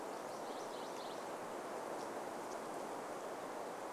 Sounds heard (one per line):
MacGillivray's Warbler song